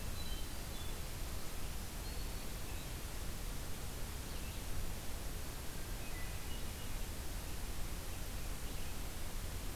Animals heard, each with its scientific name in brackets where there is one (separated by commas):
Black-throated Green Warbler (Setophaga virens), Hermit Thrush (Catharus guttatus), Red-eyed Vireo (Vireo olivaceus)